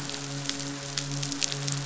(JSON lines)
{"label": "biophony, midshipman", "recorder": "SoundTrap 500"}